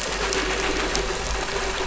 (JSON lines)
{"label": "anthrophony, boat engine", "recorder": "SoundTrap 500"}